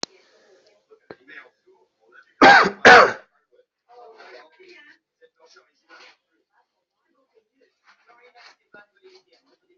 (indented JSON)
{
  "expert_labels": [
    {
      "quality": "good",
      "cough_type": "dry",
      "dyspnea": false,
      "wheezing": false,
      "stridor": false,
      "choking": false,
      "congestion": false,
      "nothing": true,
      "diagnosis": "healthy cough",
      "severity": "pseudocough/healthy cough"
    }
  ],
  "age": 27,
  "gender": "male",
  "respiratory_condition": false,
  "fever_muscle_pain": false,
  "status": "COVID-19"
}